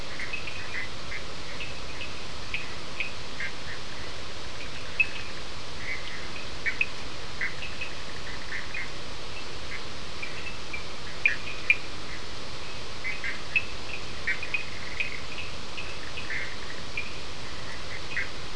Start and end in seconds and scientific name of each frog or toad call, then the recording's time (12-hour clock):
0.0	18.5	Sphaenorhynchus surdus
0.1	0.9	Boana bischoffi
6.5	9.0	Boana bischoffi
11.2	11.5	Boana bischoffi
13.2	13.4	Boana bischoffi
14.2	14.4	Boana bischoffi
16.2	16.6	Boana bischoffi
18.1	18.3	Boana bischoffi
4:30am